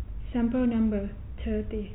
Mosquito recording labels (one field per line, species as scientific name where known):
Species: no mosquito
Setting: cup